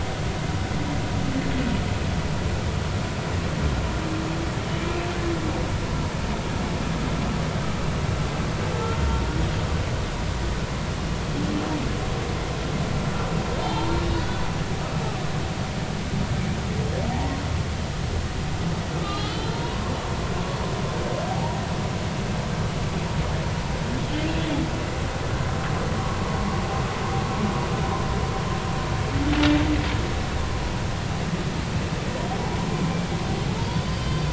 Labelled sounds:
4.8	5.0	humpback whale, 2.3 to 2.5 kHz
13.6	14.4	humpback whale, 0.80 to 3.7 kHz
18.9	19.9	humpback whale, 0.90 to 4.2 kHz
21.3	21.6	humpback whale, 0.80 to 0.99 kHz
33.8	34.3	humpback whale, 3.0 to 5.3 kHz

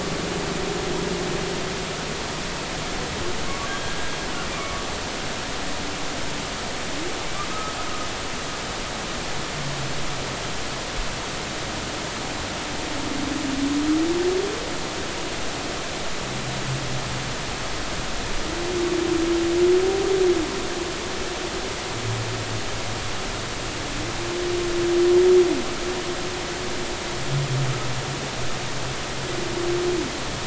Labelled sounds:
3.7	4.0	humpback whale, 1.5 to 1.7 kHz
4.6	4.8	humpback whale, 1.1 to 1.3 kHz

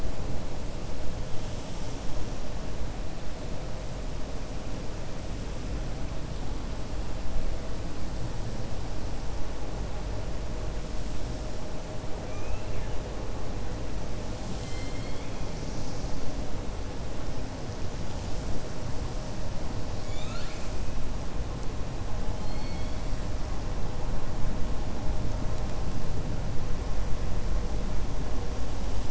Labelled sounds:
19.9	20.7	killer whale, 1.3 to 7.6 kHz
22.3	23.0	killer whale, 2.1 to 4.6 kHz

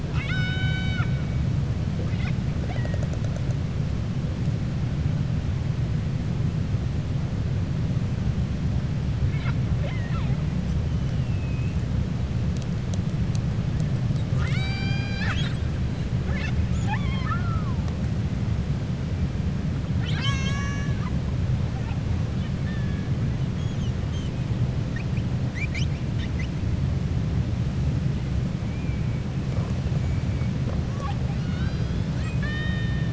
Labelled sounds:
0.0	1.1	killer whale, 0.77 to 7.5 kHz
9.7	10.4	killer whale, 0.57 to 4.0 kHz
11.1	11.7	killer whale, 2.5 to 2.9 kHz
14.1	15.7	killer whale, 0.81 to 7.9 kHz
16.7	17.8	killer whale, 0.76 to 4.3 kHz
31.3	33.1	killer whale, 1.2 to 5.7 kHz

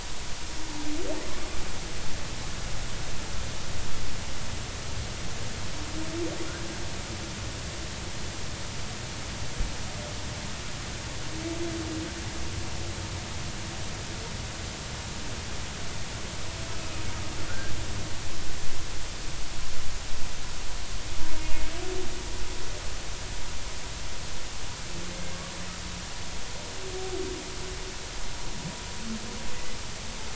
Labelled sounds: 17.5	17.7	humpback whale, 1.3 to 1.7 kHz
29.5	29.8	humpback whale, 2.0 to 2.1 kHz

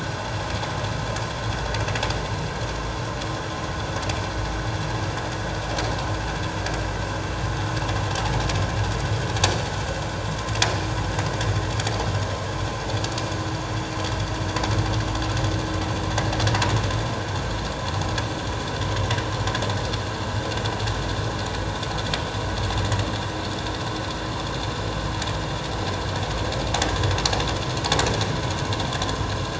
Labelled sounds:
9.4	9.8	vessel noise, 4.4 to 4.6 kHz

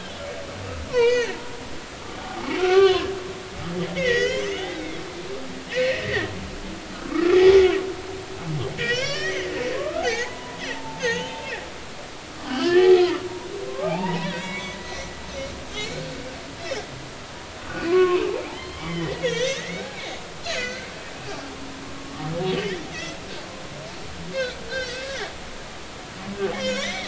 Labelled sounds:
0.9	1.4	humpback whale, 0.86 to 4.5 kHz
2.6	3.6	humpback whale, 0.80 to 4.3 kHz
3.9	5.4	humpback whale, 1.4 to 6.5 kHz
5.7	6.3	humpback whale, 1.7 to 2.0 kHz
7.0	7.6	humpback whale, 1.1 to 2.4 kHz
8.8	11.4	humpback whale, 0.80 to 6.8 kHz
12.5	13.0	humpback whale, 0.80 to 5.3 kHz
13.7	14.8	humpback whale, 0.80 to 5.8 kHz
15.8	16.0	humpback whale, 2.0 to 2.4 kHz
16.6	16.8	humpback whale, 5.1 to 5.5 kHz
17.6	19.8	humpback whale, 0.80 to 6.6 kHz
20.4	20.9	humpback whale, 1.4 to 4.6 kHz
22.0	23.2	humpback whale, 1.1 to 3.4 kHz
24.3	25.2	humpback whale, 1.4 to 4.8 kHz
26.5	27.0	humpback whale, 1.4 to 6.0 kHz

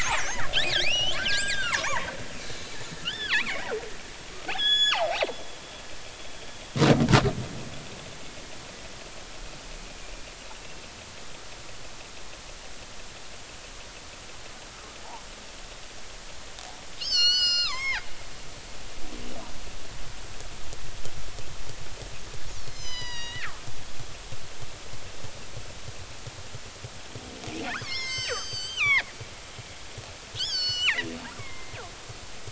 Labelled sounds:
0.7	2.1	killer whale, northern resident, G clan, 0.83 to 6.2 kHz
2.4	3.6	killer whale, northern resident, G clan, 0.83 to 4.2 kHz
4.5	5.1	killer whale, northern resident, G clan, 0.80 to 6.9 kHz
17.0	18.0	killer whale, northern resident, G clan, 0.80 to 7.6 kHz
22.5	24.5	killer whale, northern resident, G clan, 0.90 to 7.4 kHz
27.8	29.5	killer whale, northern resident, G clan, 0.83 to 7.9 kHz
30.4	31.8	killer whale, northern resident, G clan, 0.80 to 7.7 kHz

